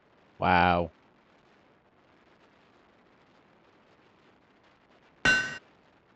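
At 0.4 seconds, someone says "Wow!" Next, at 5.2 seconds, the sound of a hammer can be heard.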